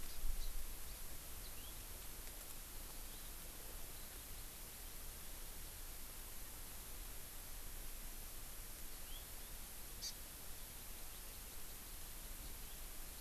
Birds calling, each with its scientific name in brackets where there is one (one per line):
Hawaii Amakihi (Chlorodrepanis virens)
House Finch (Haemorhous mexicanus)